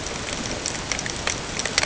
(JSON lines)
{"label": "ambient", "recorder": "HydroMoth"}